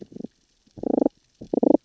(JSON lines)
{"label": "biophony, damselfish", "recorder": "SoundTrap 600 or HydroMoth"}